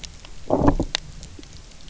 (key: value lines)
label: biophony, low growl
recorder: SoundTrap 300